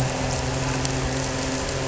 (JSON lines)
{"label": "anthrophony, boat engine", "recorder": "SoundTrap 300"}